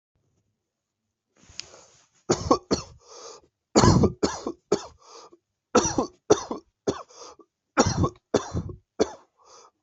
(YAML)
expert_labels:
- quality: good
  cough_type: dry
  dyspnea: false
  wheezing: false
  stridor: false
  choking: false
  congestion: false
  nothing: true
  diagnosis: COVID-19
  severity: mild